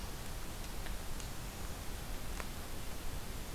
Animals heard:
forest ambience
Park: Acadia National Park